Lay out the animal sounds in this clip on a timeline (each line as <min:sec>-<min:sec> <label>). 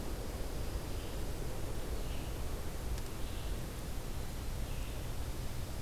0:00.0-0:01.3 Dark-eyed Junco (Junco hyemalis)
0:00.0-0:05.8 Red-eyed Vireo (Vireo olivaceus)
0:05.2-0:05.8 Dark-eyed Junco (Junco hyemalis)